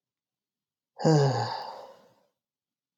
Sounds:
Sigh